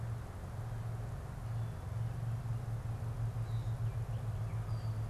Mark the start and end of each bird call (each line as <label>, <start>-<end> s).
Gray Catbird (Dumetella carolinensis), 3.1-5.1 s